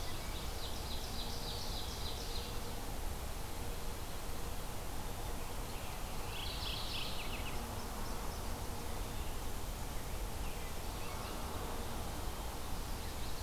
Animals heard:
Mourning Warbler (Geothlypis philadelphia), American Robin (Turdus migratorius), Ovenbird (Seiurus aurocapilla)

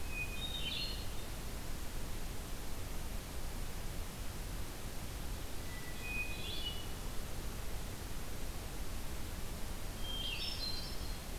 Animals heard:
Red-eyed Vireo (Vireo olivaceus), Hermit Thrush (Catharus guttatus)

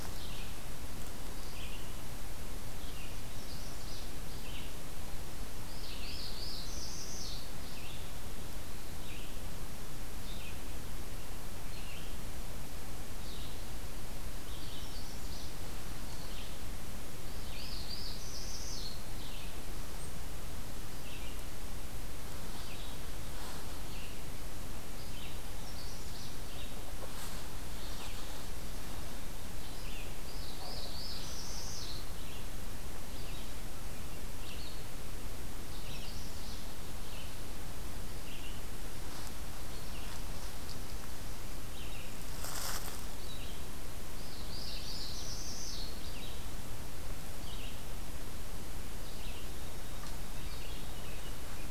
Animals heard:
Magnolia Warbler (Setophaga magnolia), Red-eyed Vireo (Vireo olivaceus), Northern Parula (Setophaga americana)

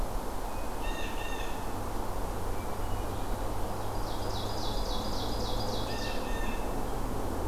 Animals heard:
Ovenbird (Seiurus aurocapilla), Blue Jay (Cyanocitta cristata), Hermit Thrush (Catharus guttatus)

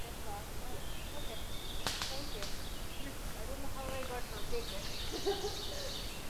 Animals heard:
Red-eyed Vireo (Vireo olivaceus), Ovenbird (Seiurus aurocapilla), Black-throated Blue Warbler (Setophaga caerulescens)

